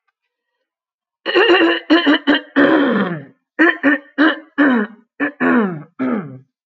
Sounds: Throat clearing